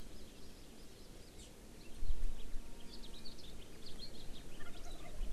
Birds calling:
House Finch (Haemorhous mexicanus), Hawaii Amakihi (Chlorodrepanis virens)

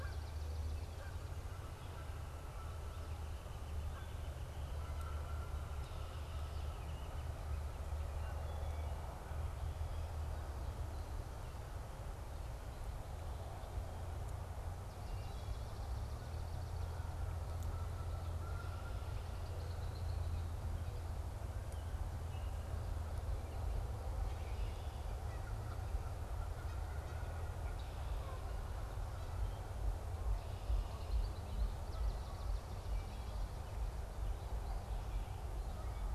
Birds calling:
Northern Flicker (Colaptes auratus), Swamp Sparrow (Melospiza georgiana), Red-winged Blackbird (Agelaius phoeniceus), Canada Goose (Branta canadensis), Wood Thrush (Hylocichla mustelina)

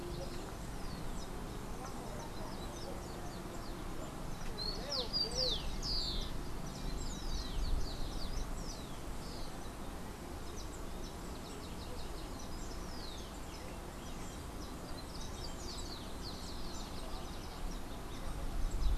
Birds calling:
Rufous-collared Sparrow (Zonotrichia capensis)

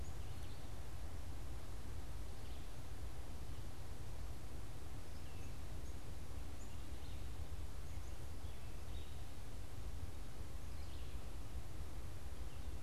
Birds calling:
Red-eyed Vireo (Vireo olivaceus), Black-capped Chickadee (Poecile atricapillus)

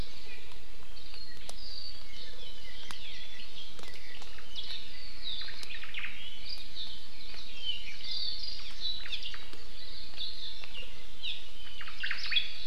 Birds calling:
Hawaii Amakihi (Chlorodrepanis virens), Apapane (Himatione sanguinea), Omao (Myadestes obscurus)

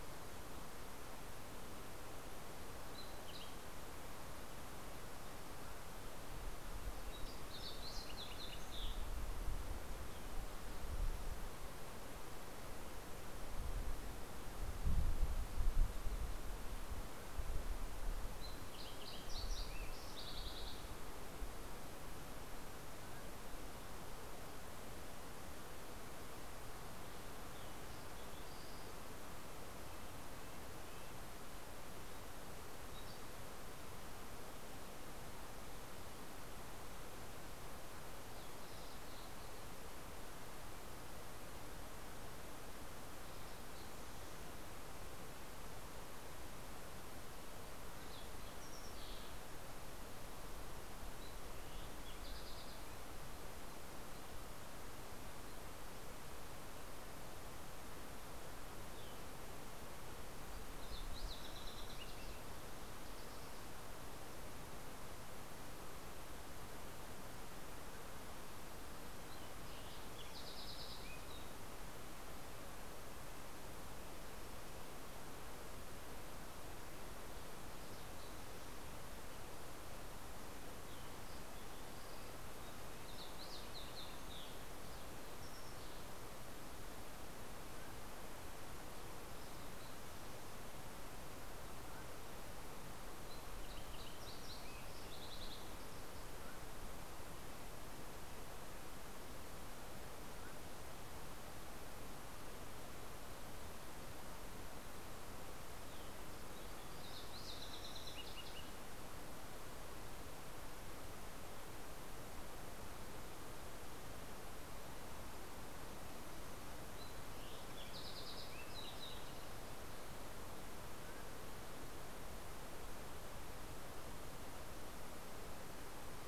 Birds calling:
Fox Sparrow (Passerella iliaca), Red-breasted Nuthatch (Sitta canadensis)

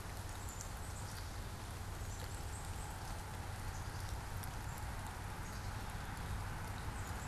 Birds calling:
Black-capped Chickadee (Poecile atricapillus)

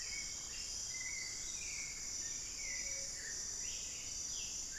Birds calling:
Mealy Parrot (Amazona farinosa), Black-billed Thrush (Turdus ignobilis)

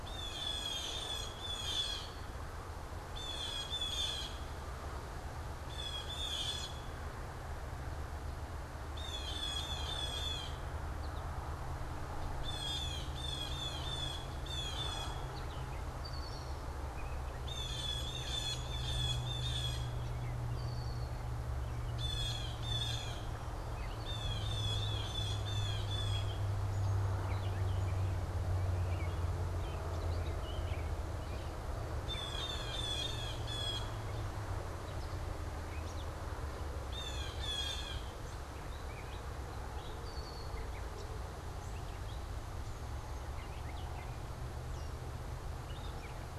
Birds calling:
American Robin (Turdus migratorius), Blue Jay (Cyanocitta cristata), Gray Catbird (Dumetella carolinensis), Red-winged Blackbird (Agelaius phoeniceus)

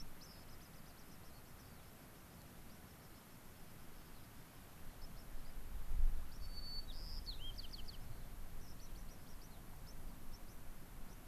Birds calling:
Gray-crowned Rosy-Finch (Leucosticte tephrocotis), White-crowned Sparrow (Zonotrichia leucophrys), unidentified bird

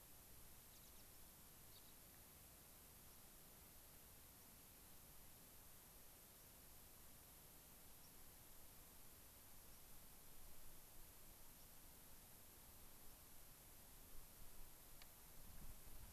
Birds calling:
American Pipit (Anthus rubescens), White-crowned Sparrow (Zonotrichia leucophrys), Gray-crowned Rosy-Finch (Leucosticte tephrocotis)

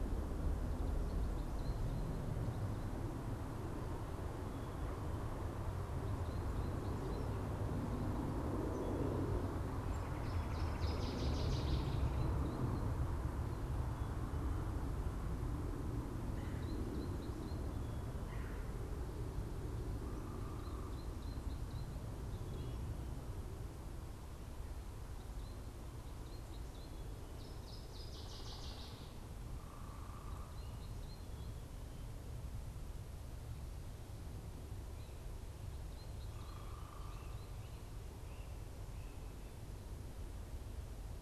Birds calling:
Northern Waterthrush (Parkesia noveboracensis), Great Crested Flycatcher (Myiarchus crinitus), Red-bellied Woodpecker (Melanerpes carolinus), unidentified bird, American Goldfinch (Spinus tristis)

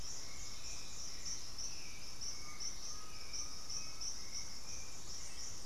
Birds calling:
Russet-backed Oropendola (Psarocolius angustifrons), Hauxwell's Thrush (Turdus hauxwelli), Undulated Tinamou (Crypturellus undulatus)

